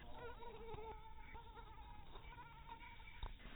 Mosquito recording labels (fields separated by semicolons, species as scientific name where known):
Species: mosquito; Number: one; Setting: cup